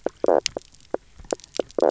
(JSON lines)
{"label": "biophony, knock croak", "recorder": "SoundTrap 300"}